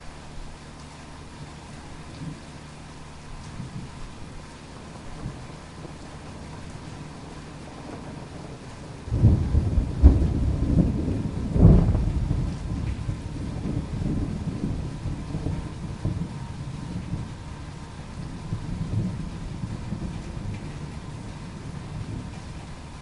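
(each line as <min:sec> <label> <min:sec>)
0:00.2 Distant thunder rumbles intermittently under steady rainfall, creating a deep, ambient natural atmosphere during a thunderstorm. 0:23.0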